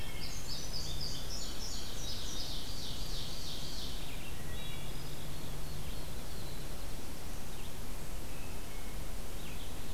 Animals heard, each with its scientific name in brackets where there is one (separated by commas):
Indigo Bunting (Passerina cyanea), Ovenbird (Seiurus aurocapilla), Field Sparrow (Spizella pusilla), Red-eyed Vireo (Vireo olivaceus), Wood Thrush (Hylocichla mustelina)